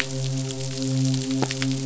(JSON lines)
{"label": "biophony, midshipman", "recorder": "SoundTrap 500"}